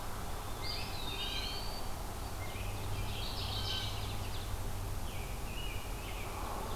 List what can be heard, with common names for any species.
American Robin, Eastern Wood-Pewee, Mourning Warbler, Blue Jay, Ovenbird